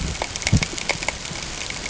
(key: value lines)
label: ambient
recorder: HydroMoth